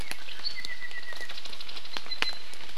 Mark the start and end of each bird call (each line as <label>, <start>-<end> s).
Apapane (Himatione sanguinea), 0.0-1.4 s
Apapane (Himatione sanguinea), 2.1-2.5 s